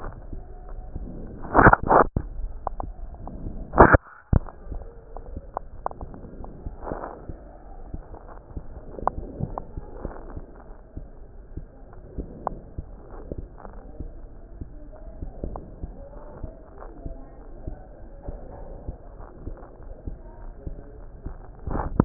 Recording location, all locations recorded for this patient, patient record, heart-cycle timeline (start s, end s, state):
aortic valve (AV)
aortic valve (AV)+pulmonary valve (PV)+tricuspid valve (TV)+mitral valve (MV)
#Age: Child
#Sex: Female
#Height: 136.0 cm
#Weight: 28.0 kg
#Pregnancy status: False
#Murmur: Absent
#Murmur locations: nan
#Most audible location: nan
#Systolic murmur timing: nan
#Systolic murmur shape: nan
#Systolic murmur grading: nan
#Systolic murmur pitch: nan
#Systolic murmur quality: nan
#Diastolic murmur timing: nan
#Diastolic murmur shape: nan
#Diastolic murmur grading: nan
#Diastolic murmur pitch: nan
#Diastolic murmur quality: nan
#Outcome: Normal
#Campaign: 2015 screening campaign
0.00	14.56	unannotated
14.56	14.69	S2
14.69	14.91	diastole
14.91	15.12	S1
15.12	15.19	systole
15.19	15.32	S2
15.32	15.46	diastole
15.46	15.65	S1
15.65	15.79	systole
15.79	15.94	S2
15.94	16.08	diastole
16.08	16.31	S1
16.31	16.44	systole
16.44	16.52	S2
16.52	16.74	diastole
16.74	16.93	S1
16.93	17.06	systole
17.06	17.16	S2
17.16	17.38	diastole
17.38	17.54	S1
17.54	17.65	systole
17.65	17.78	S2
17.78	17.99	diastole
17.99	18.17	S1
18.17	18.27	systole
18.27	18.40	S2
18.40	18.62	diastole
18.62	18.77	S1
18.77	18.86	systole
18.86	18.99	S2
18.99	19.16	diastole
19.16	19.32	S1
19.32	19.43	systole
19.43	19.58	S2
19.58	19.80	diastole
19.80	19.95	S1
19.95	20.06	systole
20.06	20.18	S2
20.18	20.35	diastole
20.35	20.52	S1
20.52	20.62	systole
20.62	20.78	S2
20.78	20.93	diastole
20.93	21.09	S1
21.09	21.23	systole
21.23	21.36	S2
21.36	21.51	diastole
21.51	22.05	unannotated